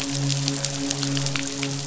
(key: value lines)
label: biophony, midshipman
recorder: SoundTrap 500